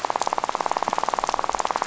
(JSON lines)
{"label": "biophony, rattle", "recorder": "SoundTrap 500"}